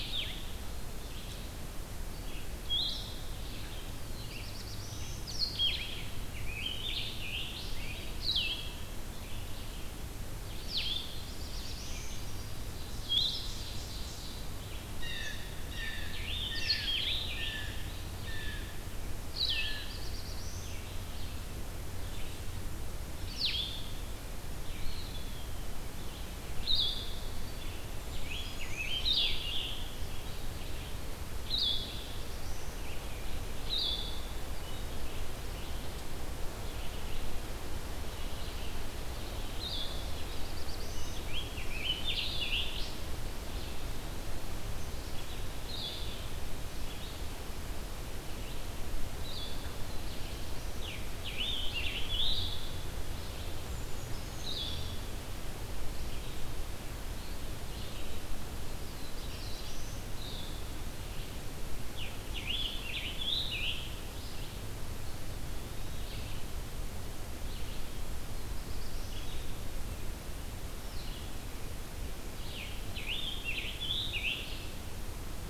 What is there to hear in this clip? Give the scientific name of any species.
Vireo solitarius, Vireo olivaceus, Setophaga caerulescens, Piranga olivacea, Seiurus aurocapilla, Cyanocitta cristata